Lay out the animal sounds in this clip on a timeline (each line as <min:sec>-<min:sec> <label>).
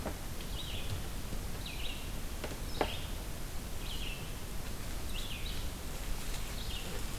0:00.3-0:07.2 Red-eyed Vireo (Vireo olivaceus)